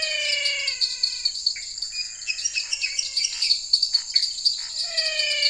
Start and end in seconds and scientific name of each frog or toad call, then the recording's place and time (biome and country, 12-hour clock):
0.0	5.4	Dendropsophus minutus
0.0	5.4	Dendropsophus nanus
0.0	5.4	Physalaemus albonotatus
0.0	5.4	Pithecopus azureus
3.3	4.7	Scinax fuscovarius
Cerrado, Brazil, 8:30pm